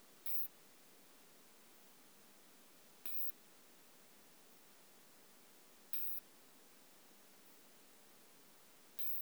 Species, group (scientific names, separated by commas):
Isophya modestior, Orthoptera